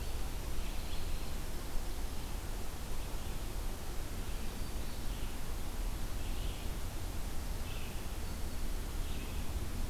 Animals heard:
Red-eyed Vireo (Vireo olivaceus)

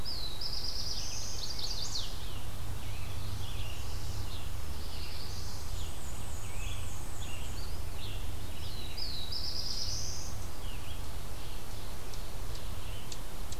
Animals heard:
Black-and-white Warbler (Mniotilta varia)
Ovenbird (Seiurus aurocapilla)
Scarlet Tanager (Piranga olivacea)
Black-throated Blue Warbler (Setophaga caerulescens)
Red-eyed Vireo (Vireo olivaceus)
Eastern Chipmunk (Tamias striatus)
Chestnut-sided Warbler (Setophaga pensylvanica)

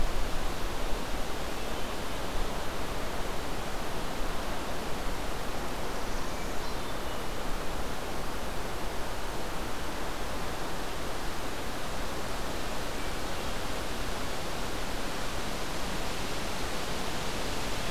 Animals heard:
Northern Parula (Setophaga americana)

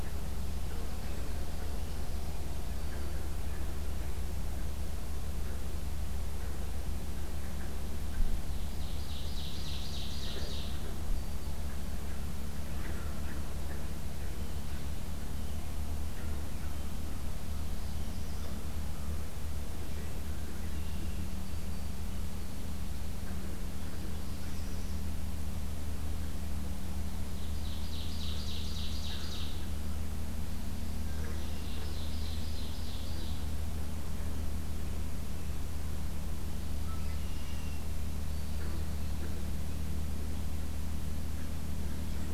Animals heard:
Red-winged Blackbird (Agelaius phoeniceus)
Ovenbird (Seiurus aurocapilla)
Northern Parula (Setophaga americana)

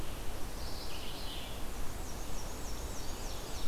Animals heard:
Chestnut-sided Warbler (Setophaga pensylvanica)
Red-eyed Vireo (Vireo olivaceus)
Ovenbird (Seiurus aurocapilla)
Black-and-white Warbler (Mniotilta varia)

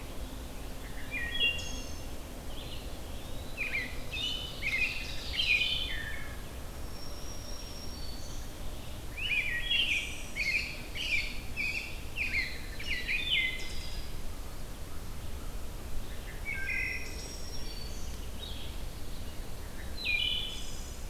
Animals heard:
Black-throated Green Warbler (Setophaga virens)
Eastern Wood-Pewee (Contopus virens)
Wood Thrush (Hylocichla mustelina)
American Robin (Turdus migratorius)

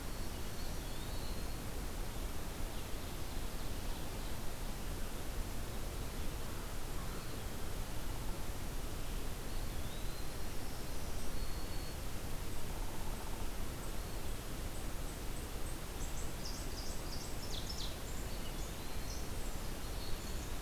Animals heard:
American Crow (Corvus brachyrhynchos)
Ovenbird (Seiurus aurocapilla)
Black-throated Green Warbler (Setophaga virens)
Downy Woodpecker (Dryobates pubescens)
Eastern Wood-Pewee (Contopus virens)

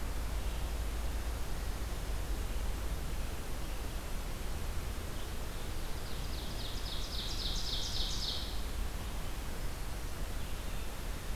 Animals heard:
Ovenbird (Seiurus aurocapilla)

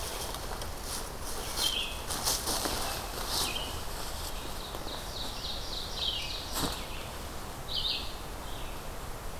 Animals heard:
Ovenbird (Seiurus aurocapilla)
Red-eyed Vireo (Vireo olivaceus)

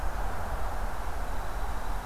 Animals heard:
Dark-eyed Junco (Junco hyemalis)

